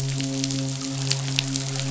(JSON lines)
{"label": "biophony, midshipman", "recorder": "SoundTrap 500"}